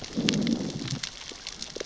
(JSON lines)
{"label": "biophony, growl", "recorder": "SoundTrap 600 or HydroMoth"}